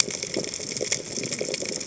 {"label": "biophony, cascading saw", "recorder": "HydroMoth"}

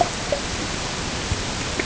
{"label": "ambient", "recorder": "HydroMoth"}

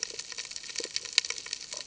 {"label": "ambient", "recorder": "HydroMoth"}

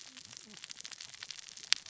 {"label": "biophony, cascading saw", "recorder": "SoundTrap 600 or HydroMoth"}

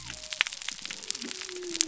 {"label": "biophony", "recorder": "SoundTrap 300"}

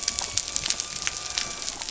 {"label": "anthrophony, boat engine", "recorder": "SoundTrap 300"}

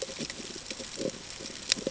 {"label": "ambient", "recorder": "HydroMoth"}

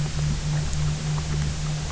{"label": "anthrophony, boat engine", "recorder": "SoundTrap 300"}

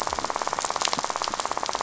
{"label": "biophony, rattle", "recorder": "SoundTrap 500"}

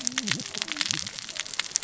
{"label": "biophony, cascading saw", "recorder": "SoundTrap 600 or HydroMoth"}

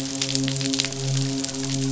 {"label": "biophony, midshipman", "recorder": "SoundTrap 500"}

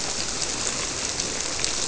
{"label": "biophony", "recorder": "SoundTrap 300"}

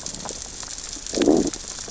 {"label": "biophony, growl", "recorder": "SoundTrap 600 or HydroMoth"}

